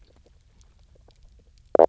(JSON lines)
{"label": "biophony, knock croak", "recorder": "SoundTrap 300"}